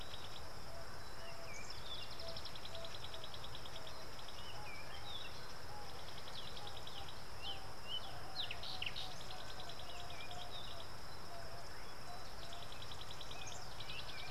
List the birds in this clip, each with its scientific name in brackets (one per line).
African Bare-eyed Thrush (Turdus tephronotus)